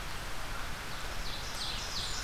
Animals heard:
Blackburnian Warbler (Setophaga fusca)
Ovenbird (Seiurus aurocapilla)

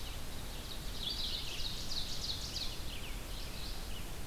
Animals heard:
Red-eyed Vireo (Vireo olivaceus)
Ovenbird (Seiurus aurocapilla)

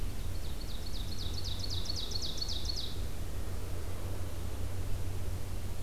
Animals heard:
Ovenbird (Seiurus aurocapilla)

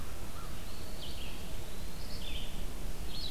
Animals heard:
American Crow (Corvus brachyrhynchos)
Eastern Wood-Pewee (Contopus virens)
Red-eyed Vireo (Vireo olivaceus)

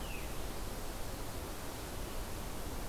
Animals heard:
Veery (Catharus fuscescens)

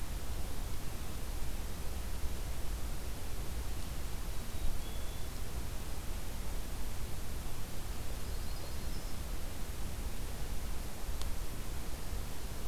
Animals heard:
Black-capped Chickadee (Poecile atricapillus)
Yellow-rumped Warbler (Setophaga coronata)

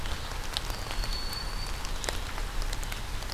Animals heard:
Red-eyed Vireo (Vireo olivaceus)
Broad-winged Hawk (Buteo platypterus)

